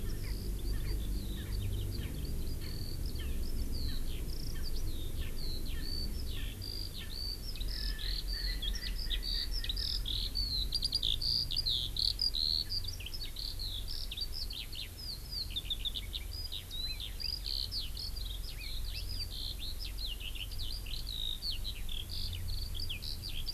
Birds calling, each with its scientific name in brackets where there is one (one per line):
Hawaii Elepaio (Chasiempis sandwichensis)
Erckel's Francolin (Pternistis erckelii)
Eurasian Skylark (Alauda arvensis)